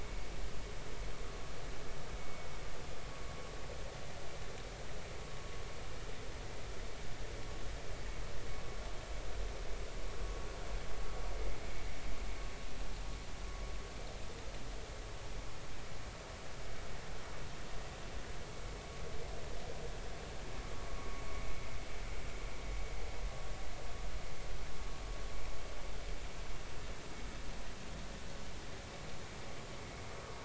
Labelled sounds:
2.2	2.5	vessel noise, 2.18 to 2.24 kHz
21.0	21.2	vessel noise, 1.1 to 1.2 kHz

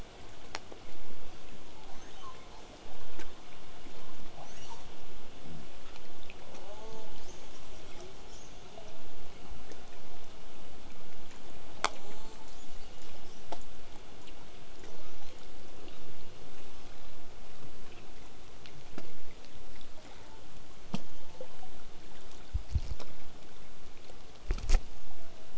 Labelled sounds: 1.6	2.7	killer whale, southern resident, L pod, call S02iii, 0.62 to 6.8 kHz
4.3	4.9	killer whale, southern resident, L pod, call S02iii, 0.39 to 8.0 kHz
6.5	8.7	killer whale, southern resident, call S10, 0.25 to 8.0 kHz
11.8	13.6	killer whale, southern resident, call S10, 0.27 to 8.0 kHz
14.8	16.2	killer whale, southern resident, 0.17 to 7.3 kHz
16.5	17.1	killer whale, southern resident, 0.15 to 6.8 kHz

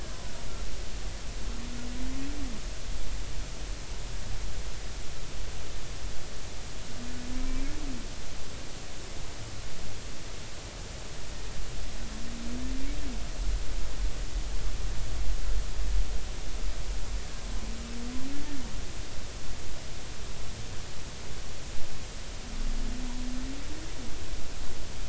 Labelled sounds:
7.5	7.7	humpback whale, 2.3 to 2.5 kHz

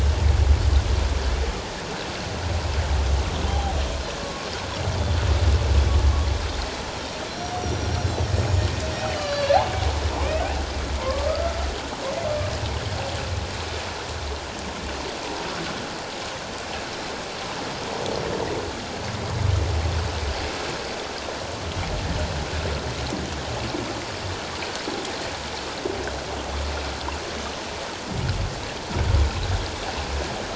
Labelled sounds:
3.5	4.5	humpback whale, 0.78 to 1.2 kHz
6.9	9.6	humpback whale, 1.1 to 6.8 kHz
11.0	11.6	humpback whale, 0.88 to 1.4 kHz

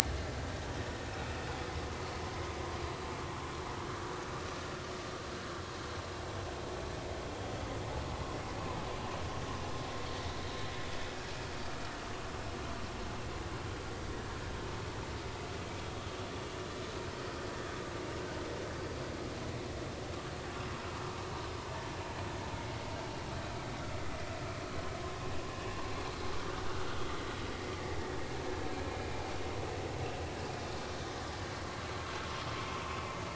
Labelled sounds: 28.8	29.2	vessel noise, 2.3 to 2.5 kHz

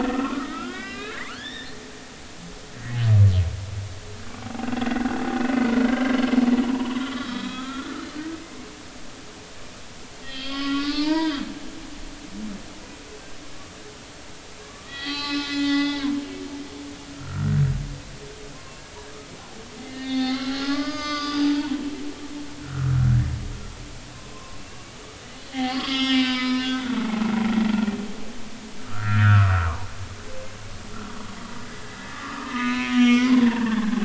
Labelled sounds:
0.0	1.8	humpback whale, 1.0 to 4.2 kHz
4.4	5.2	humpback whale, 0.80 to 1.7 kHz
5.8	6.2	humpback whale, 1.5 to 3.2 kHz
6.6	8.0	humpback whale, 0.86 to 4.1 kHz
10.2	11.5	humpback whale, 0.86 to 5.2 kHz
14.6	16.1	humpback whale, 0.80 to 7.2 kHz
17.1	17.6	humpback whale, 1.2 to 1.6 kHz
18.5	18.8	humpback whale, 0.99 to 1.1 kHz
19.9	23.2	humpback whale, 0.80 to 6.4 kHz
24.1	24.6	humpback whale, 0.99 to 1.1 kHz
25.5	27.9	humpback whale, 0.80 to 5.5 kHz
28.8	29.9	humpback whale, 0.86 to 1.9 kHz
32.0	34.0	humpback whale, 0.80 to 5.7 kHz

